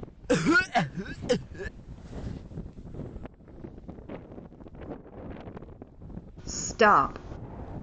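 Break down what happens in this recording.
0.27-1.69 s: someone coughs
6.51-7.07 s: a voice says "Stop"

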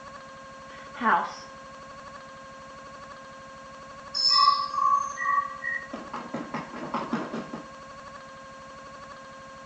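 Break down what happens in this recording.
0.96-1.6 s: a voice says "house"
4.13-5.79 s: chirping can be heard
5.91-7.59 s: someone runs
an even background noise continues

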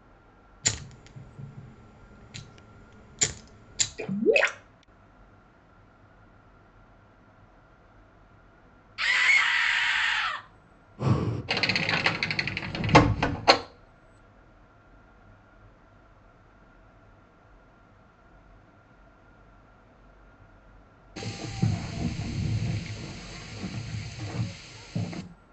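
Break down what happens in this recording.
0.63-3.89 s: fire can be heard
3.96-4.5 s: gurgling is heard
8.97-10.41 s: someone screams
10.96-11.42 s: breathing is audible
11.47-13.57 s: a window closes
21.15-25.22 s: there is wind
an even, faint background noise continues, about 30 decibels below the sounds

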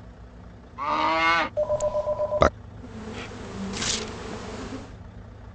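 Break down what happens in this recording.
0.77-1.5 s: cattle moo
1.55-2.49 s: the sound of a dial tone
2.7-5.06 s: a quiet insect is audible, fading in and then fading out
3.7-4.06 s: there is tearing
a continuous steady noise lies about 20 dB below the sounds

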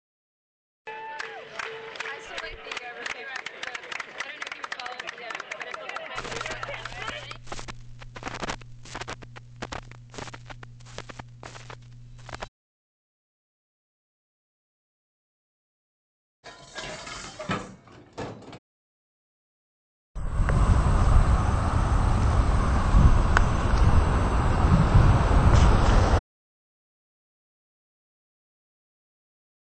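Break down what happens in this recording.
0.84-7.38 s: someone claps
6.15-12.48 s: crackling is audible
16.43-18.59 s: you can hear the sound of dishes
20.14-26.19 s: a loud insect is heard

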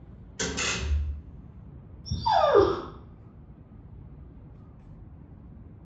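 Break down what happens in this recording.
0.37-1.08 s: there is the sound of a door
2.04-2.79 s: you can hear a dog
an even, steady noise lies in the background

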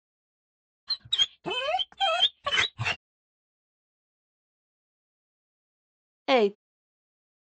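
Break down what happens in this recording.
0.87-2.97 s: a dog can be heard
6.29-6.49 s: someone says "eight"

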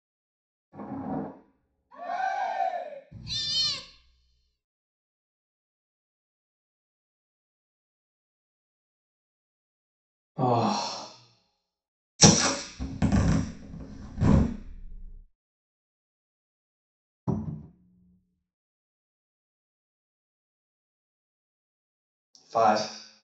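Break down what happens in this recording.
0.71-1.29 s: thunder can be heard
1.9-2.98 s: cheering is heard
3.11-3.81 s: a cat is audible
10.35-11.05 s: someone sighs
12.19-12.49 s: the sound of fire
12.78-14.5 s: the sound of a zipper
17.27-17.69 s: a cupboard opens or closes
22.53-22.85 s: someone says "five"

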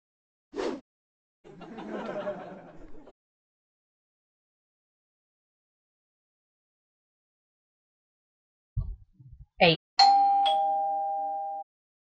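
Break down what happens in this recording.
0.51-0.81 s: whooshing is audible
1.44-3.12 s: there is laughter
8.76-9.76 s: someone says "Eight."
9.97-11.63 s: you can hear the sound of a doorbell

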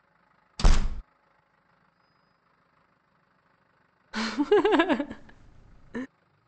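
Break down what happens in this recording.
0.58-1.02 s: a door closes
4.12-6.07 s: laughter is heard
a faint, steady noise continues

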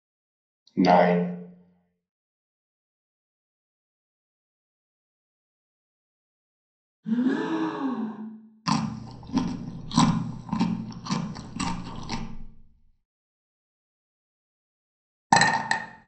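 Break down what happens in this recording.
0.78-1.18 s: someone says "nine"
7.03-8.19 s: someone gasps
8.65-12.19 s: chewing is heard
15.3-15.78 s: chinking can be heard

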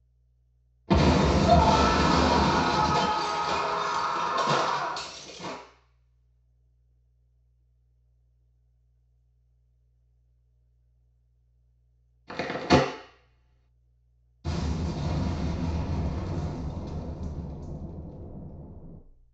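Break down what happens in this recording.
0.87-5.55 s: an explosion is heard
1.42-5.0 s: someone screams
12.27-12.8 s: crackling is audible
14.44-18.98 s: there is booming
a faint constant noise persists

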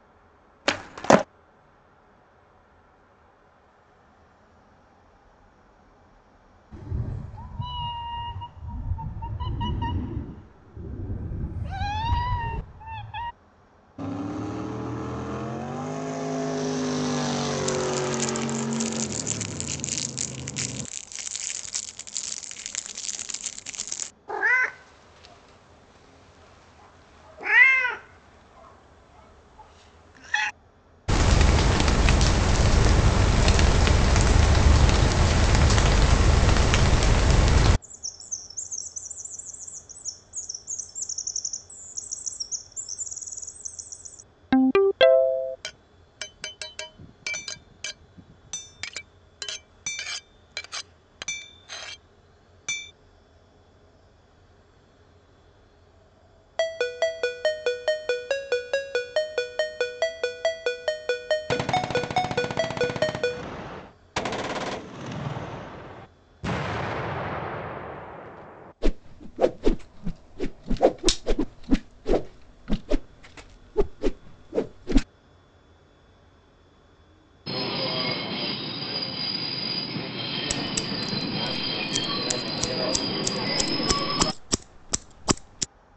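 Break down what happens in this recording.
0:00-0:31
0.65-1.25 s: you can hear the sound of a skateboard
6.71-13.31 s: a cat meows
13.98-20.86 s: the sound of a motorboat is audible
17.63-24.11 s: crackling can be heard
24.27-30.51 s: a cat meows loudly
0:31-0:56
31.08-37.77 s: there is rain
37.82-44.24 s: chirping is heard
44.5-45.56 s: a ringtone is audible
45.62-51.98 s: the sound of glass
47.32-52.92 s: a hammer can be heard
0:56-1:26
56.57-63.43 s: a ringtone can be heard
61.47-66.07 s: gunfire is heard
66.43-68.73 s: there is an explosion
68.8-75.04 s: you can hear whooshing
77.46-84.32 s: the sound of a subway can be heard
80.48-85.66 s: there is the sound of scissors

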